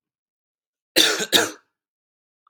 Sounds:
Cough